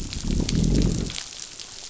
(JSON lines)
{"label": "biophony, growl", "recorder": "SoundTrap 500"}